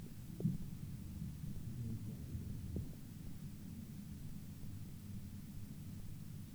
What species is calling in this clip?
Tylopsis lilifolia